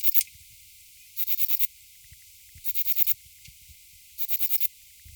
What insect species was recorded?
Platycleis albopunctata